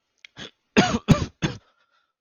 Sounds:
Cough